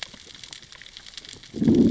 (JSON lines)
{"label": "biophony, growl", "recorder": "SoundTrap 600 or HydroMoth"}